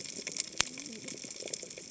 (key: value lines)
label: biophony, cascading saw
recorder: HydroMoth